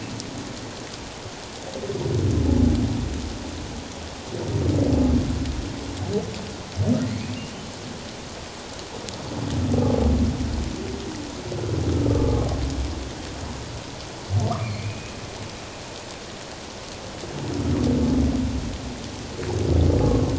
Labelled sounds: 7.0	7.3	humpback whale, 1.8 to 2.3 kHz
12.1	12.4	humpback whale, 1.1 to 1.2 kHz
14.6	15.2	humpback whale, 2.1 to 2.6 kHz

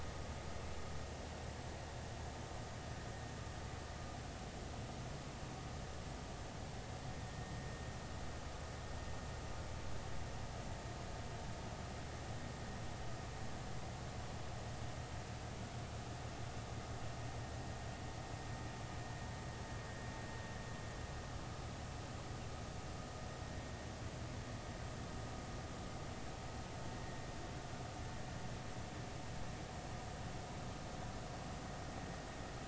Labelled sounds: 7.2	7.6	vessel noise, 1.8 to 1.9 kHz

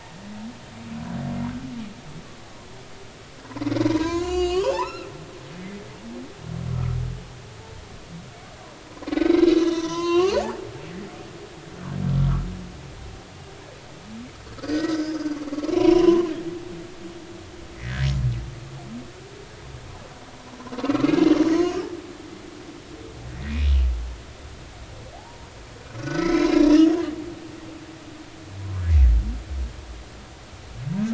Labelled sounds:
3.8	5.1	humpback whale, 0.80 to 7.5 kHz
9.3	10.6	humpback whale, 0.80 to 6.3 kHz
14.6	15.4	humpback whale, 1.4 to 5.2 kHz
15.7	16.3	humpback whale, 0.93 to 3.1 kHz
20.8	21.1	humpback whale, 0.99 to 1.4 kHz
21.5	21.8	humpback whale, 6.3 to 6.5 kHz
23.3	23.7	humpback whale, 1.8 to 2.3 kHz
25.1	26.8	humpback whale, 0.80 to 5.4 kHz

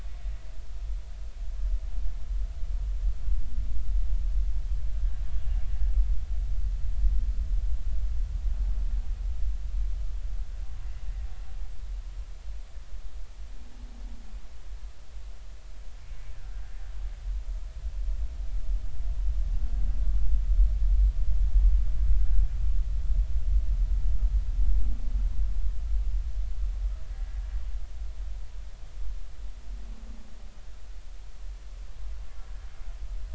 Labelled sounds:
16.3	16.6	humpback whale, 1.3 to 1.8 kHz
27.1	27.4	humpback whale, 1.6 to 1.7 kHz

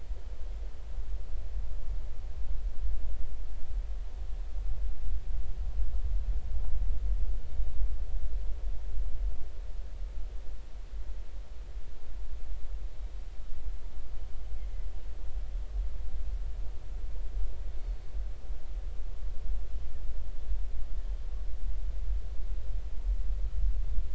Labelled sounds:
17.8	18.0	killer whale, 4.35 to 4.45 kHz

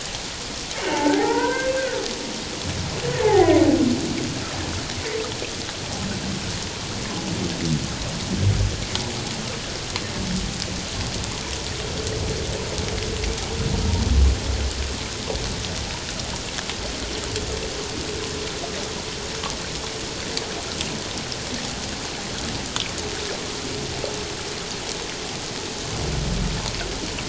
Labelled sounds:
0.8	1.7	humpback whale, 0.78 to 2.1 kHz
3.2	3.6	humpback whale, 0.78 to 0.91 kHz

